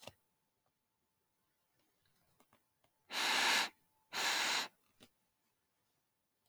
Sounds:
Sniff